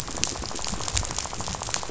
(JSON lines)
{"label": "biophony, rattle", "recorder": "SoundTrap 500"}